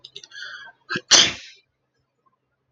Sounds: Sneeze